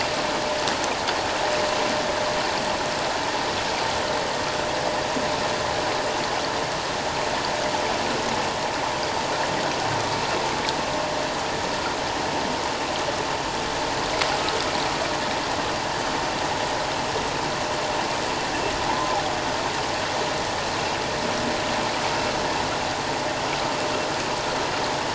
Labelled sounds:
18.9	19.2	humpback whale, 0.84 to 1.1 kHz

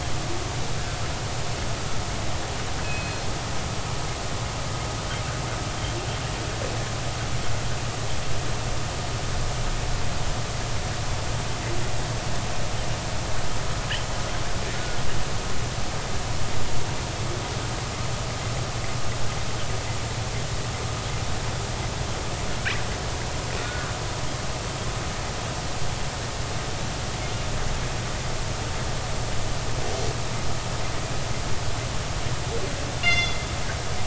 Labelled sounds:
2.8	3.3	killer whale, northern resident, G clan, call N24ii, 2.5 to 4.3 kHz
23.6	23.9	killer whale, northern resident, G clan, 1.3 to 1.6 kHz
33.0	33.4	killer whale, northern resident, G clan, call N24ii, 2.0 to 6.3 kHz

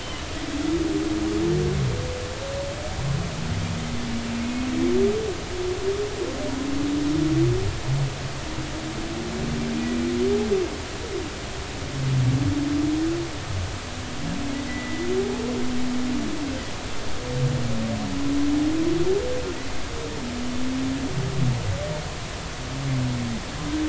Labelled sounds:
4.4	4.7	humpback whale, 2.1 to 2.6 kHz
14.7	15.1	humpback whale, 1.9 to 2.0 kHz

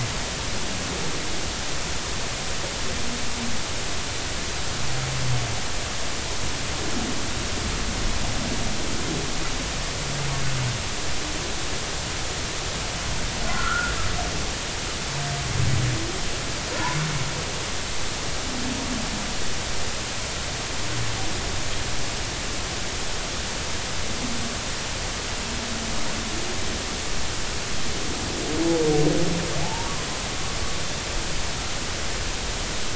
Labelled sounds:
13.4	13.9	humpback whale, 1.2 to 1.5 kHz
29.6	29.9	humpback whale, 0.80 to 0.99 kHz

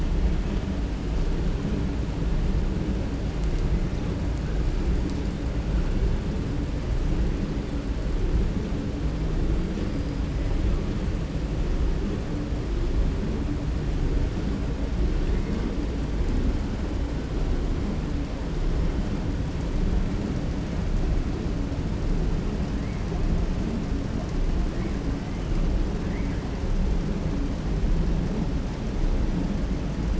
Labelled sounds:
9.6	10.1	killer whale, 4.1 to 5.8 kHz

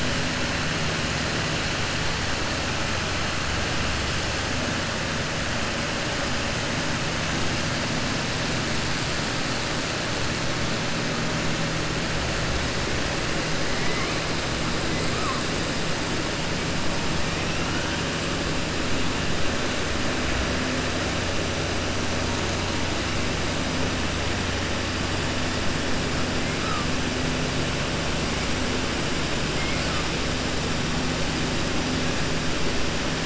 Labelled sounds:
13.7	14.1	killer whale, 1.1 to 3.1 kHz

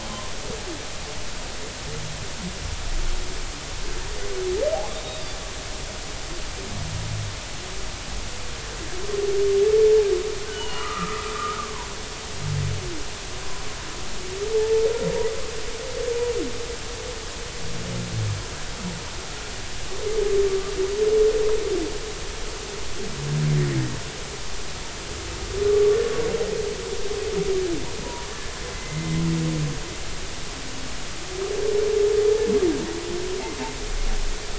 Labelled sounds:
4.7	5.3	humpback whale, 0.80 to 3.8 kHz
10.5	11.7	humpback whale, 0.86 to 3.0 kHz
14.5	14.9	humpback whale, 0.83 to 0.93 kHz
28.7	29.2	humpback whale, 2.0 to 2.1 kHz

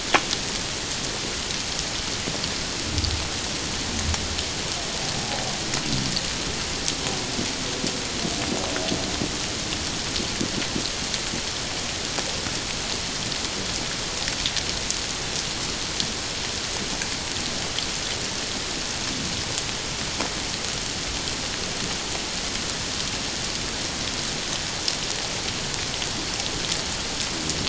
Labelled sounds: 5.2	5.4	humpback whale, 0.78 to 0.88 kHz

